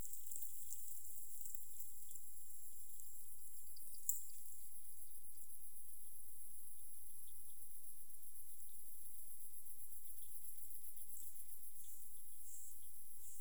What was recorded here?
Leptophyes punctatissima, an orthopteran